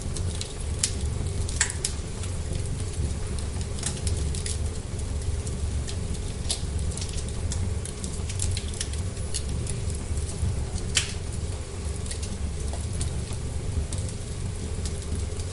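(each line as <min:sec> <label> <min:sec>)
0:00.0 Wood crackling repeatedly in a clear indoor fire. 0:15.5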